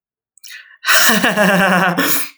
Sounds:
Laughter